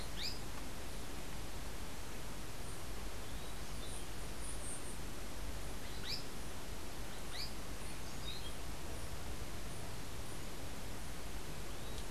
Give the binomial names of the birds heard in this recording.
Synallaxis azarae, Catharus aurantiirostris